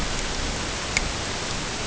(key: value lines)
label: ambient
recorder: HydroMoth